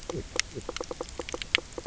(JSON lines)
{"label": "biophony, knock croak", "recorder": "SoundTrap 300"}